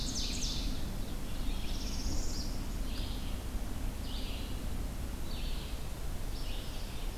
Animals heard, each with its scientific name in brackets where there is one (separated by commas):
Ovenbird (Seiurus aurocapilla), Northern Parula (Setophaga americana), Red-eyed Vireo (Vireo olivaceus)